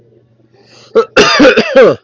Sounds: Cough